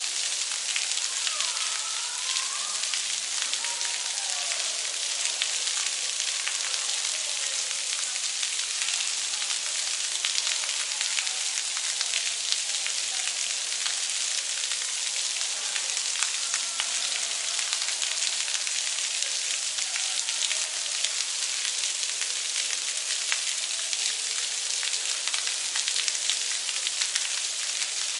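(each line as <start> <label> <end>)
0.0 Rain falling loudly on hard ground. 28.2
1.2 People shouting in the distance. 5.0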